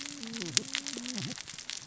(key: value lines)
label: biophony, cascading saw
recorder: SoundTrap 600 or HydroMoth